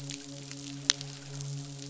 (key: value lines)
label: biophony, midshipman
recorder: SoundTrap 500